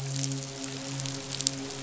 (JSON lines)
{"label": "biophony, midshipman", "recorder": "SoundTrap 500"}